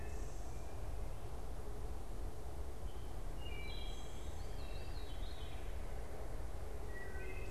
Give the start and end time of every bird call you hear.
0.0s-7.5s: Veery (Catharus fuscescens)
0.0s-7.5s: Wood Thrush (Hylocichla mustelina)

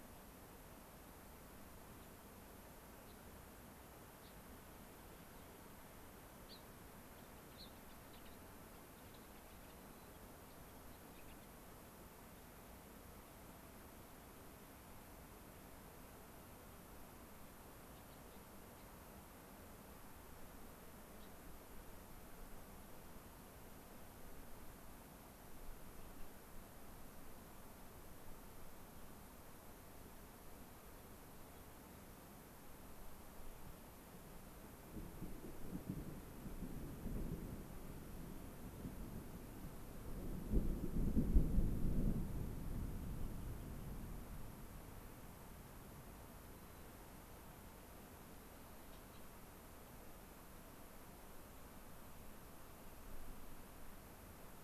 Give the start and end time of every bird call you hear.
2.0s-2.1s: Gray-crowned Rosy-Finch (Leucosticte tephrocotis)
3.1s-3.2s: Gray-crowned Rosy-Finch (Leucosticte tephrocotis)
4.2s-4.4s: Gray-crowned Rosy-Finch (Leucosticte tephrocotis)
6.4s-11.5s: Gray-crowned Rosy-Finch (Leucosticte tephrocotis)
9.8s-10.4s: White-crowned Sparrow (Zonotrichia leucophrys)
17.9s-18.9s: Gray-crowned Rosy-Finch (Leucosticte tephrocotis)
21.2s-21.3s: Gray-crowned Rosy-Finch (Leucosticte tephrocotis)
46.6s-47.0s: White-crowned Sparrow (Zonotrichia leucophrys)

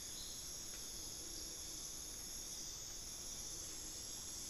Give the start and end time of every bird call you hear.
0.0s-4.5s: Collared Forest-Falcon (Micrastur semitorquatus)

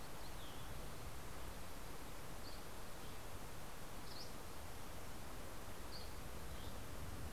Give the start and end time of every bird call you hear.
2.0s-7.3s: Dusky Flycatcher (Empidonax oberholseri)

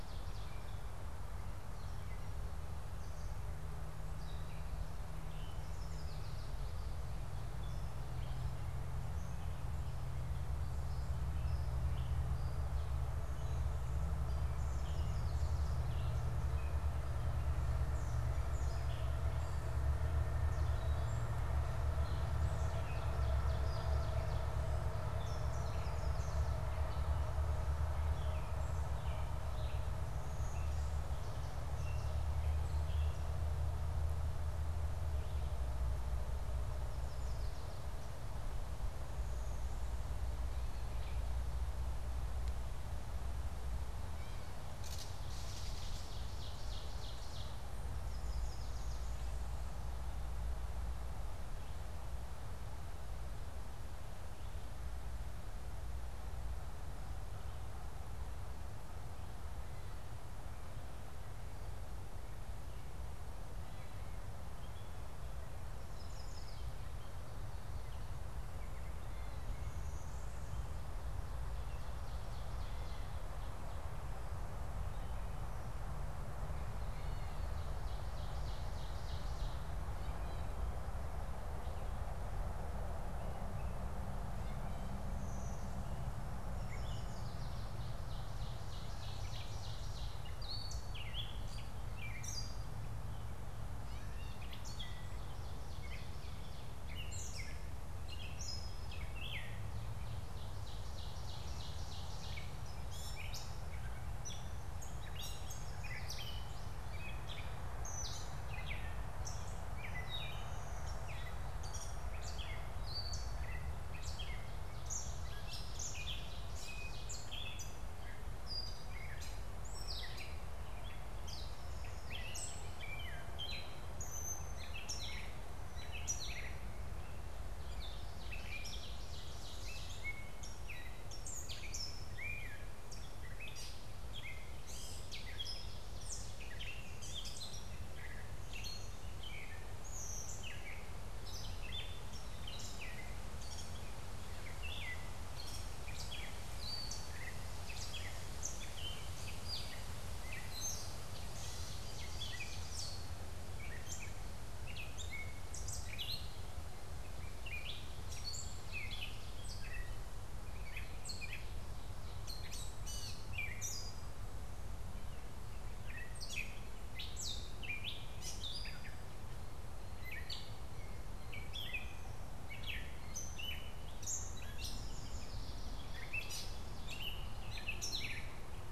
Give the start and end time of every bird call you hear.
0.0s-1.1s: Ovenbird (Seiurus aurocapilla)
1.7s-33.3s: Gray Catbird (Dumetella carolinensis)
5.6s-6.8s: Yellow Warbler (Setophaga petechia)
14.5s-16.0s: Yellow Warbler (Setophaga petechia)
22.3s-24.6s: Ovenbird (Seiurus aurocapilla)
36.8s-38.2s: Yellow Warbler (Setophaga petechia)
44.0s-46.2s: Gray Catbird (Dumetella carolinensis)
45.4s-47.7s: Ovenbird (Seiurus aurocapilla)
47.9s-49.2s: Yellow Warbler (Setophaga petechia)
65.8s-66.9s: Yellow Warbler (Setophaga petechia)
71.5s-73.5s: Ovenbird (Seiurus aurocapilla)
77.7s-79.8s: Ovenbird (Seiurus aurocapilla)
85.1s-86.2s: Blue-winged Warbler (Vermivora cyanoptera)
86.4s-87.7s: Yellow Warbler (Setophaga petechia)
87.6s-90.4s: Ovenbird (Seiurus aurocapilla)
89.0s-178.7s: Gray Catbird (Dumetella carolinensis)
94.8s-96.9s: Ovenbird (Seiurus aurocapilla)
99.8s-102.7s: Ovenbird (Seiurus aurocapilla)
105.1s-106.7s: Yellow Warbler (Setophaga petechia)
127.7s-130.2s: Ovenbird (Seiurus aurocapilla)
150.9s-153.3s: Ovenbird (Seiurus aurocapilla)
174.5s-176.4s: Yellow Warbler (Setophaga petechia)
174.9s-176.8s: Ovenbird (Seiurus aurocapilla)

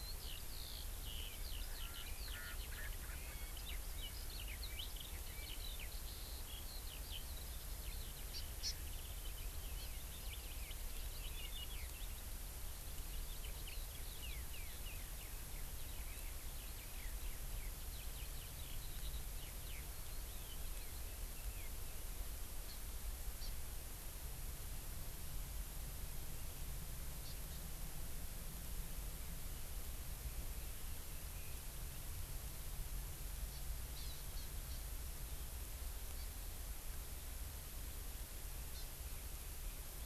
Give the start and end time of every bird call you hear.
0.0s-21.7s: Eurasian Skylark (Alauda arvensis)
8.3s-8.4s: Hawaii Amakihi (Chlorodrepanis virens)
22.7s-22.8s: Hawaii Amakihi (Chlorodrepanis virens)
23.4s-23.5s: Hawaii Amakihi (Chlorodrepanis virens)
27.2s-27.6s: Hawaii Amakihi (Chlorodrepanis virens)
33.5s-33.6s: Hawaii Amakihi (Chlorodrepanis virens)
34.0s-34.8s: Hawaii Amakihi (Chlorodrepanis virens)
36.2s-36.3s: Hawaii Amakihi (Chlorodrepanis virens)
38.7s-38.9s: Hawaii Amakihi (Chlorodrepanis virens)

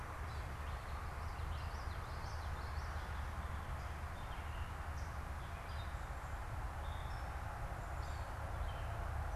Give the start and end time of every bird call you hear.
0.0s-3.1s: Gray Catbird (Dumetella carolinensis)
1.0s-3.2s: Common Yellowthroat (Geothlypis trichas)
3.7s-9.4s: Gray Catbird (Dumetella carolinensis)

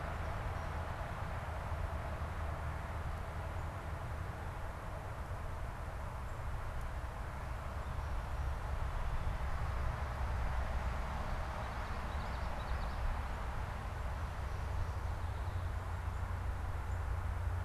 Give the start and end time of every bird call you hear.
11.4s-13.4s: Common Yellowthroat (Geothlypis trichas)

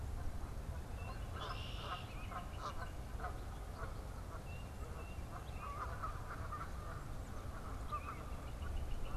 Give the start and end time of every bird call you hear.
0.0s-8.4s: unidentified bird
0.0s-9.2s: Canada Goose (Branta canadensis)
0.9s-2.2s: Red-winged Blackbird (Agelaius phoeniceus)
8.1s-9.2s: Northern Flicker (Colaptes auratus)

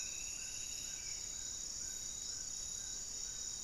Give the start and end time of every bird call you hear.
0.0s-1.3s: Striped Woodcreeper (Xiphorhynchus obsoletus)
0.0s-1.6s: Spot-winged Antshrike (Pygiptila stellaris)
0.0s-3.6s: Amazonian Trogon (Trogon ramonianus)

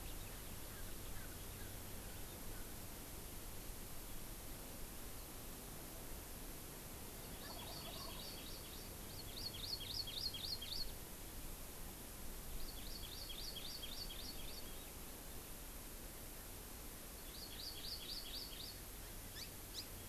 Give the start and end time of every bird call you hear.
0.6s-2.8s: Erckel's Francolin (Pternistis erckelii)
7.2s-11.0s: Hawaii Amakihi (Chlorodrepanis virens)
7.3s-8.7s: Wild Turkey (Meleagris gallopavo)
12.5s-14.7s: Hawaii Amakihi (Chlorodrepanis virens)
17.2s-18.8s: Hawaii Amakihi (Chlorodrepanis virens)
19.2s-20.0s: Hawaii Amakihi (Chlorodrepanis virens)

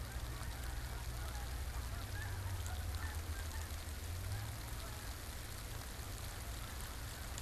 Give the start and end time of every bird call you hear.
0.0s-4.6s: unidentified bird

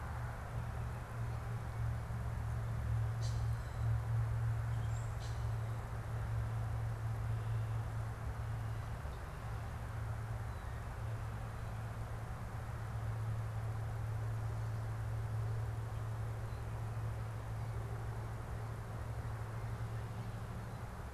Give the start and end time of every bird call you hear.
3.0s-5.6s: Common Grackle (Quiscalus quiscula)

